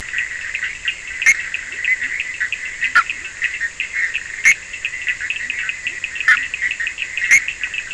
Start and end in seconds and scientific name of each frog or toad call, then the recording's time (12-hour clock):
0.0	7.9	Boana bischoffi
0.0	7.9	Sphaenorhynchus surdus
1.5	3.6	Leptodactylus latrans
5.2	6.9	Leptodactylus latrans
3:15am